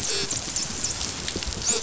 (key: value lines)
label: biophony, dolphin
recorder: SoundTrap 500